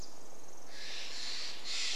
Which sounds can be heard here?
Pacific Wren song, Steller's Jay call